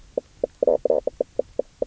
{"label": "biophony, knock croak", "recorder": "SoundTrap 300"}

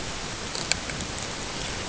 {"label": "ambient", "recorder": "HydroMoth"}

